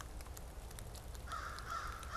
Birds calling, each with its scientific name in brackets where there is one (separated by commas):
American Crow (Corvus brachyrhynchos)